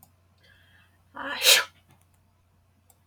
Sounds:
Sneeze